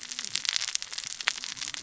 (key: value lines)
label: biophony, cascading saw
recorder: SoundTrap 600 or HydroMoth